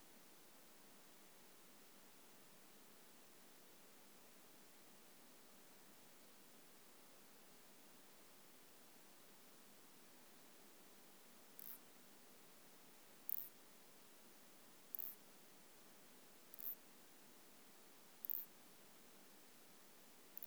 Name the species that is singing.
Isophya clara